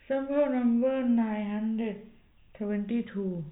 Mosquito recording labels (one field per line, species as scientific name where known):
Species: no mosquito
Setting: cup